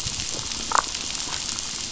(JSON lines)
{"label": "biophony, damselfish", "recorder": "SoundTrap 500"}